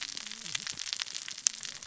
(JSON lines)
{"label": "biophony, cascading saw", "recorder": "SoundTrap 600 or HydroMoth"}